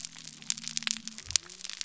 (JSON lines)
{"label": "biophony", "recorder": "SoundTrap 300"}